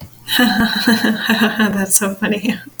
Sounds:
Laughter